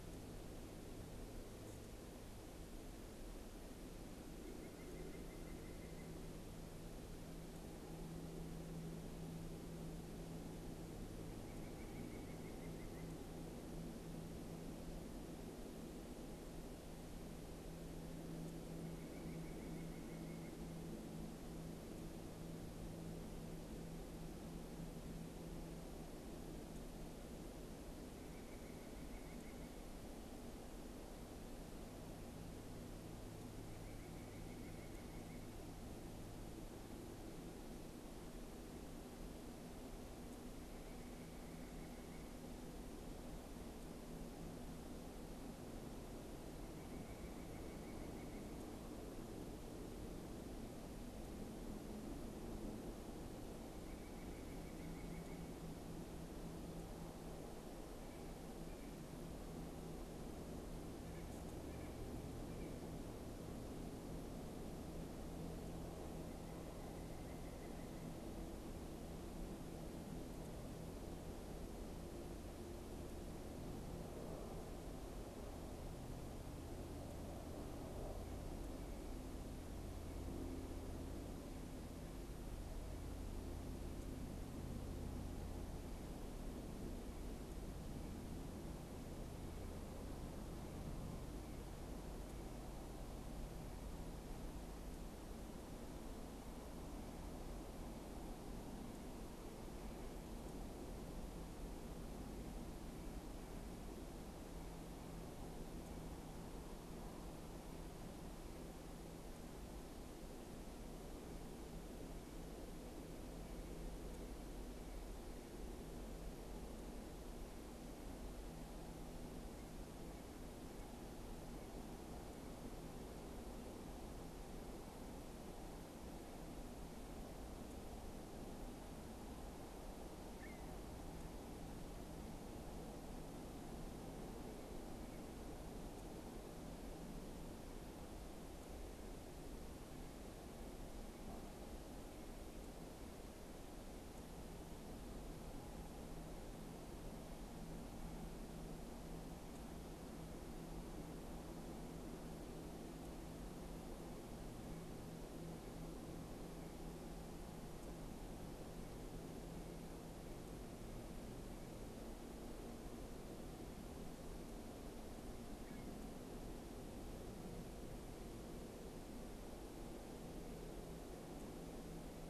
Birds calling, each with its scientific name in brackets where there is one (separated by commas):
White-breasted Nuthatch (Sitta carolinensis), unidentified bird